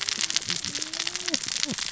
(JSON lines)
{"label": "biophony, cascading saw", "recorder": "SoundTrap 600 or HydroMoth"}